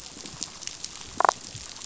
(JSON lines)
{"label": "biophony", "recorder": "SoundTrap 500"}
{"label": "biophony, damselfish", "recorder": "SoundTrap 500"}